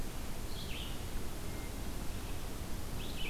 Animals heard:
Red-eyed Vireo (Vireo olivaceus)

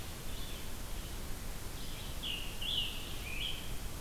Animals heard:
Scarlet Tanager (Piranga olivacea)

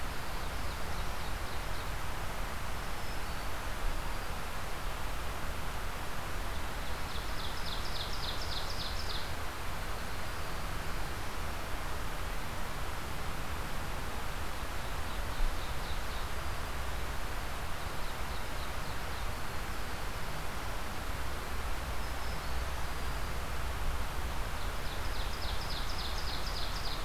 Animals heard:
Ovenbird (Seiurus aurocapilla)
Black-throated Blue Warbler (Setophaga caerulescens)
Black-throated Green Warbler (Setophaga virens)

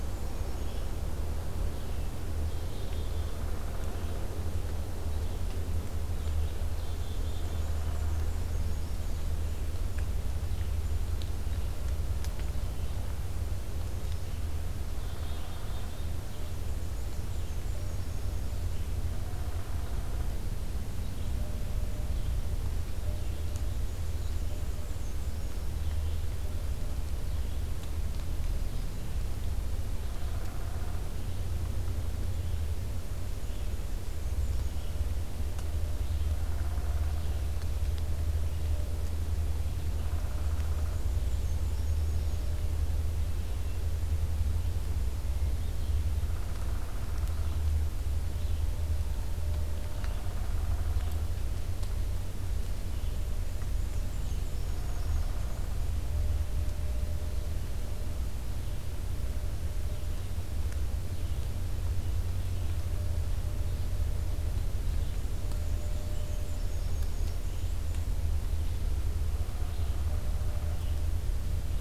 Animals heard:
Black-capped Chickadee (Poecile atricapillus)
Red-eyed Vireo (Vireo olivaceus)
Downy Woodpecker (Dryobates pubescens)
Black-and-white Warbler (Mniotilta varia)

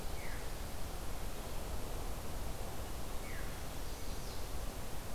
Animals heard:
Veery (Catharus fuscescens)
Chestnut-sided Warbler (Setophaga pensylvanica)

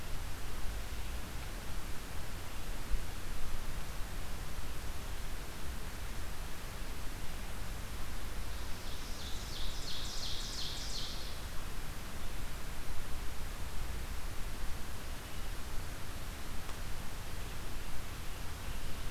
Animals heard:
Northern Parula (Setophaga americana)
Ovenbird (Seiurus aurocapilla)

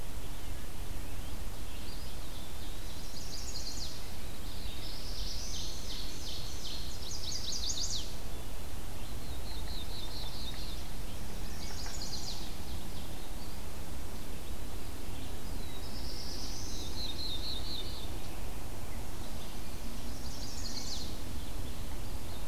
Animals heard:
Black-throated Blue Warbler (Setophaga caerulescens)
Wood Thrush (Hylocichla mustelina)
Ovenbird (Seiurus aurocapilla)
Eastern Wood-Pewee (Contopus virens)
Chestnut-sided Warbler (Setophaga pensylvanica)

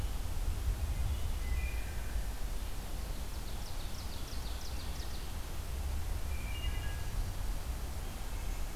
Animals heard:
Ovenbird (Seiurus aurocapilla)
Wood Thrush (Hylocichla mustelina)

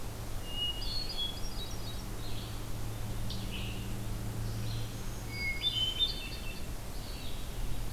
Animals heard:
Hermit Thrush (Catharus guttatus)
Red-eyed Vireo (Vireo olivaceus)
Black-throated Green Warbler (Setophaga virens)
Scarlet Tanager (Piranga olivacea)

